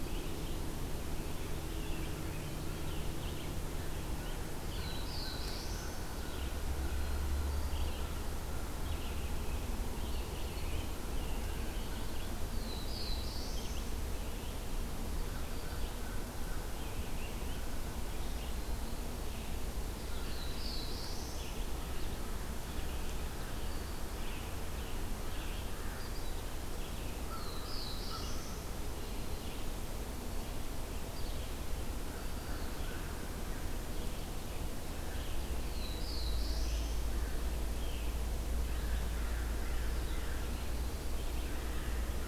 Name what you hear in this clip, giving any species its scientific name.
Vireo olivaceus, Setophaga caerulescens, Corvus brachyrhynchos, Catharus guttatus